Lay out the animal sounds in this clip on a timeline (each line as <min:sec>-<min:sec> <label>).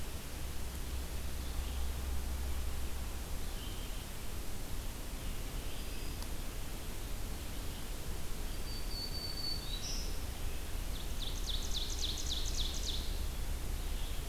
0:00.0-0:14.3 Red-eyed Vireo (Vireo olivaceus)
0:05.4-0:06.3 Black-throated Green Warbler (Setophaga virens)
0:08.4-0:10.3 Black-throated Green Warbler (Setophaga virens)
0:10.8-0:13.3 Ovenbird (Seiurus aurocapilla)